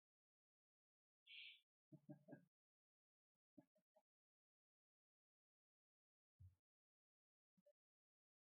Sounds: Laughter